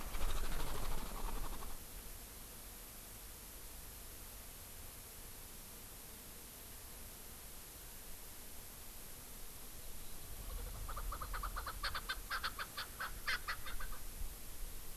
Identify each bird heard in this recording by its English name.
Kalij Pheasant